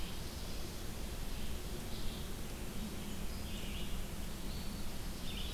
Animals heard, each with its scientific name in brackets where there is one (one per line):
Black-throated Blue Warbler (Setophaga caerulescens)
Red-eyed Vireo (Vireo olivaceus)